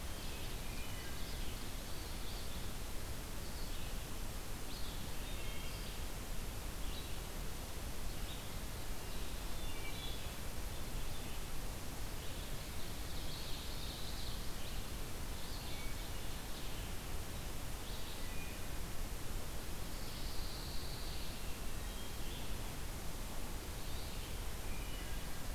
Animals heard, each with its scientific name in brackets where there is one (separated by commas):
Wood Thrush (Hylocichla mustelina), Pine Warbler (Setophaga pinus), Hermit Thrush (Catharus guttatus), Red-eyed Vireo (Vireo olivaceus), Ovenbird (Seiurus aurocapilla)